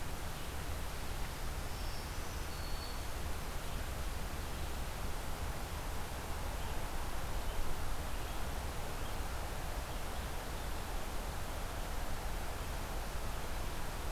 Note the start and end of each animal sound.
[1.53, 3.31] Black-throated Green Warbler (Setophaga virens)

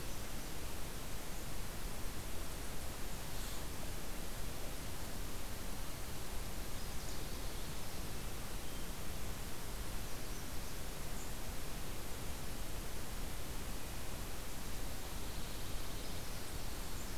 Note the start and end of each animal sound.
[14.75, 16.32] Pine Warbler (Setophaga pinus)

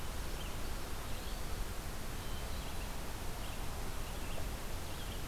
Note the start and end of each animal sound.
[0.50, 1.70] Eastern Wood-Pewee (Contopus virens)
[2.05, 5.27] Red-eyed Vireo (Vireo olivaceus)

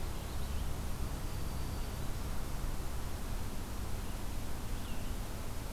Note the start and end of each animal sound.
[1.24, 2.37] Black-throated Green Warbler (Setophaga virens)

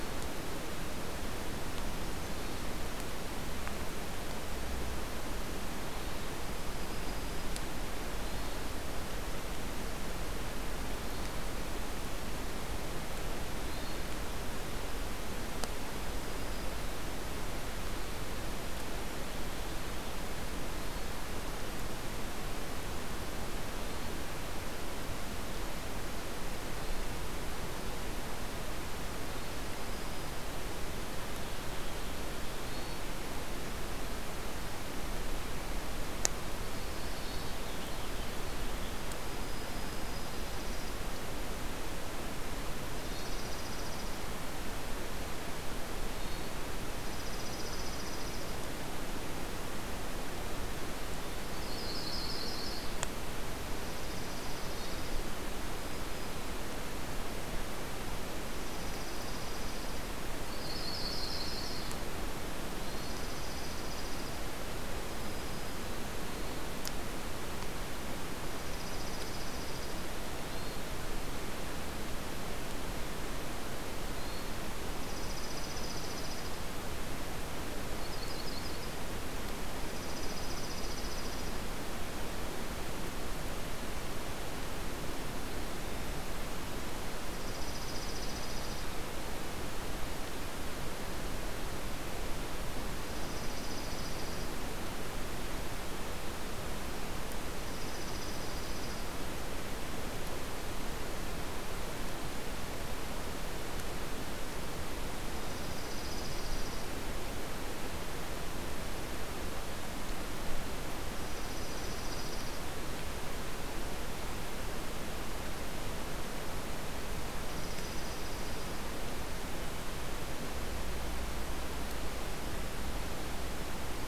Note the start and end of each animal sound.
[6.28, 7.70] Black-throated Green Warbler (Setophaga virens)
[8.05, 8.69] Hermit Thrush (Catharus guttatus)
[10.77, 11.36] Hermit Thrush (Catharus guttatus)
[13.53, 14.15] Hermit Thrush (Catharus guttatus)
[15.69, 17.26] Black-throated Green Warbler (Setophaga virens)
[20.56, 21.03] Hermit Thrush (Catharus guttatus)
[23.68, 24.13] Hermit Thrush (Catharus guttatus)
[26.45, 27.06] Hermit Thrush (Catharus guttatus)
[29.31, 30.84] Black-throated Green Warbler (Setophaga virens)
[32.57, 33.14] Hermit Thrush (Catharus guttatus)
[36.52, 37.54] Yellow-rumped Warbler (Setophaga coronata)
[36.62, 38.94] Purple Finch (Haemorhous purpureus)
[37.00, 37.63] Hermit Thrush (Catharus guttatus)
[39.16, 40.52] Black-throated Green Warbler (Setophaga virens)
[40.20, 41.15] Dark-eyed Junco (Junco hyemalis)
[42.85, 44.28] Dark-eyed Junco (Junco hyemalis)
[42.88, 43.34] Hermit Thrush (Catharus guttatus)
[45.92, 46.53] Hermit Thrush (Catharus guttatus)
[46.92, 48.45] Dark-eyed Junco (Junco hyemalis)
[51.29, 52.97] Yellow-rumped Warbler (Setophaga coronata)
[53.73, 55.27] Dark-eyed Junco (Junco hyemalis)
[54.59, 55.03] Hermit Thrush (Catharus guttatus)
[55.69, 56.55] Black-throated Green Warbler (Setophaga virens)
[58.43, 60.11] Dark-eyed Junco (Junco hyemalis)
[60.43, 61.96] Yellow-rumped Warbler (Setophaga coronata)
[62.59, 63.06] Hermit Thrush (Catharus guttatus)
[62.69, 64.42] Dark-eyed Junco (Junco hyemalis)
[64.99, 66.11] Black-throated Green Warbler (Setophaga virens)
[66.12, 66.66] Hermit Thrush (Catharus guttatus)
[68.45, 70.02] Dark-eyed Junco (Junco hyemalis)
[70.34, 70.88] Hermit Thrush (Catharus guttatus)
[74.02, 74.60] Hermit Thrush (Catharus guttatus)
[75.00, 76.61] Dark-eyed Junco (Junco hyemalis)
[77.73, 79.02] Yellow-rumped Warbler (Setophaga coronata)
[79.86, 81.66] Dark-eyed Junco (Junco hyemalis)
[85.52, 86.15] Hermit Thrush (Catharus guttatus)
[87.28, 88.91] Dark-eyed Junco (Junco hyemalis)
[93.01, 94.57] Dark-eyed Junco (Junco hyemalis)
[97.61, 99.06] Dark-eyed Junco (Junco hyemalis)
[105.25, 106.95] Dark-eyed Junco (Junco hyemalis)
[111.11, 112.63] Dark-eyed Junco (Junco hyemalis)
[117.48, 118.84] Dark-eyed Junco (Junco hyemalis)

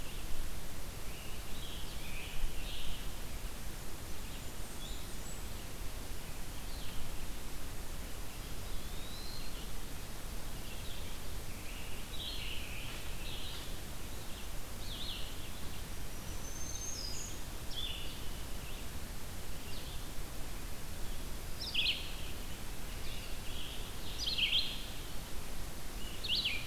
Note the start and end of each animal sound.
[0.00, 11.15] Blue-headed Vireo (Vireo solitarius)
[0.96, 3.05] Scarlet Tanager (Piranga olivacea)
[4.16, 5.55] Blackburnian Warbler (Setophaga fusca)
[8.50, 9.60] Eastern Wood-Pewee (Contopus virens)
[10.96, 13.77] Scarlet Tanager (Piranga olivacea)
[14.70, 26.67] Red-eyed Vireo (Vireo olivaceus)
[16.00, 17.41] Black-throated Green Warbler (Setophaga virens)

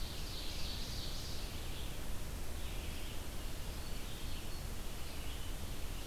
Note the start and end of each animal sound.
[0.00, 1.78] Ovenbird (Seiurus aurocapilla)
[0.00, 6.07] Red-eyed Vireo (Vireo olivaceus)
[3.30, 4.88] Black-throated Green Warbler (Setophaga virens)

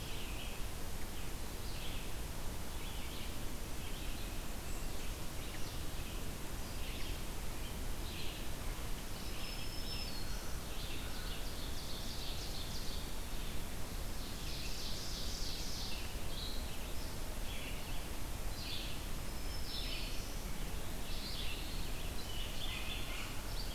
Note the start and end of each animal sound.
[0.00, 23.74] Red-eyed Vireo (Vireo olivaceus)
[9.04, 10.77] Black-throated Green Warbler (Setophaga virens)
[10.30, 13.32] Ovenbird (Seiurus aurocapilla)
[13.96, 16.06] Ovenbird (Seiurus aurocapilla)
[19.01, 20.52] Black-throated Green Warbler (Setophaga virens)

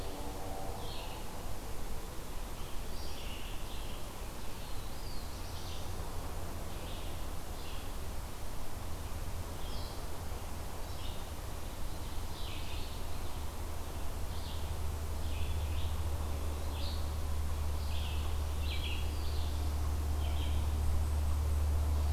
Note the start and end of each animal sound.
[0.00, 22.13] Red-eyed Vireo (Vireo olivaceus)
[4.47, 6.18] Black-throated Blue Warbler (Setophaga caerulescens)
[18.80, 20.11] Black-throated Blue Warbler (Setophaga caerulescens)

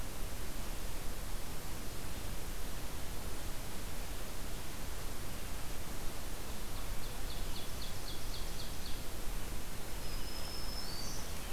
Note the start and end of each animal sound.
[6.52, 9.20] Ovenbird (Seiurus aurocapilla)
[9.72, 11.52] Black-throated Green Warbler (Setophaga virens)

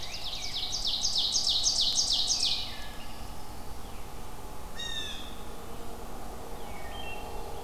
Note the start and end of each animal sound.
[0.00, 0.86] Rose-breasted Grosbeak (Pheucticus ludovicianus)
[0.00, 2.72] Ovenbird (Seiurus aurocapilla)
[2.40, 3.60] Wood Thrush (Hylocichla mustelina)
[4.45, 5.41] Blue Jay (Cyanocitta cristata)
[6.55, 7.34] Wood Thrush (Hylocichla mustelina)

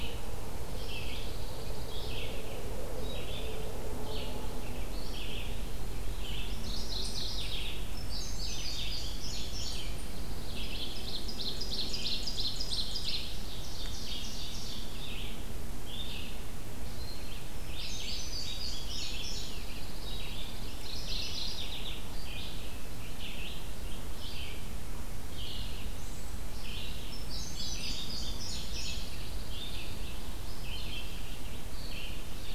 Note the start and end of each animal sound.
[0.00, 32.54] Red-eyed Vireo (Vireo olivaceus)
[0.67, 2.37] Pine Warbler (Setophaga pinus)
[4.93, 6.06] Eastern Wood-Pewee (Contopus virens)
[6.41, 8.04] Mourning Warbler (Geothlypis philadelphia)
[7.89, 10.09] Indigo Bunting (Passerina cyanea)
[9.34, 11.07] Pine Warbler (Setophaga pinus)
[10.51, 14.92] Ovenbird (Seiurus aurocapilla)
[13.76, 15.02] Eastern Wood-Pewee (Contopus virens)
[17.46, 19.85] Indigo Bunting (Passerina cyanea)
[19.18, 21.05] Pine Warbler (Setophaga pinus)
[20.75, 22.11] Mourning Warbler (Geothlypis philadelphia)
[27.03, 29.14] Indigo Bunting (Passerina cyanea)
[28.47, 30.11] Pine Warbler (Setophaga pinus)

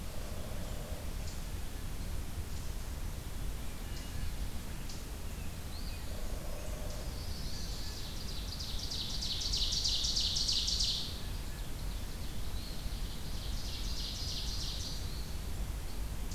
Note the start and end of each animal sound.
[0.00, 1.13] Hairy Woodpecker (Dryobates villosus)
[3.72, 4.28] Wood Thrush (Hylocichla mustelina)
[5.65, 6.00] Eastern Phoebe (Sayornis phoebe)
[6.04, 7.12] Hairy Woodpecker (Dryobates villosus)
[6.74, 8.11] Chestnut-sided Warbler (Setophaga pensylvanica)
[7.43, 8.07] Blue Jay (Cyanocitta cristata)
[7.95, 15.21] Ovenbird (Seiurus aurocapilla)
[11.12, 11.75] Blue Jay (Cyanocitta cristata)
[12.41, 13.12] Eastern Phoebe (Sayornis phoebe)

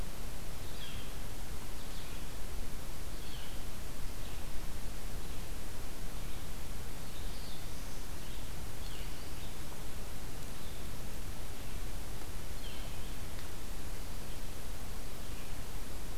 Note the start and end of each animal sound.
[0.51, 16.18] Red-eyed Vireo (Vireo olivaceus)
[0.62, 1.04] Northern Flicker (Colaptes auratus)
[3.08, 3.63] Northern Flicker (Colaptes auratus)
[6.77, 8.25] Black-throated Blue Warbler (Setophaga caerulescens)
[8.74, 9.19] Northern Flicker (Colaptes auratus)
[10.42, 10.90] Northern Flicker (Colaptes auratus)
[12.50, 12.94] Northern Flicker (Colaptes auratus)
[15.11, 15.66] Northern Flicker (Colaptes auratus)

